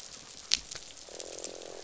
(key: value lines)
label: biophony, croak
recorder: SoundTrap 500